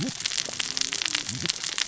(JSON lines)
{"label": "biophony, cascading saw", "recorder": "SoundTrap 600 or HydroMoth"}